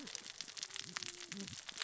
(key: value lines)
label: biophony, cascading saw
recorder: SoundTrap 600 or HydroMoth